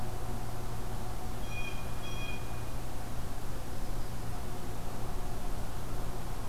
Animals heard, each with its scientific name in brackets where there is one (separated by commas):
Blue Jay (Cyanocitta cristata), Yellow-rumped Warbler (Setophaga coronata)